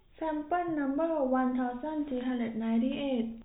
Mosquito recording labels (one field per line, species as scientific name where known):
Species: no mosquito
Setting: cup